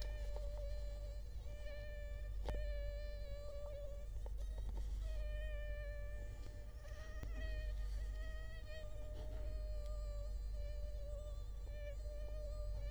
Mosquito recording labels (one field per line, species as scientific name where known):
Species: Culex quinquefasciatus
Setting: cup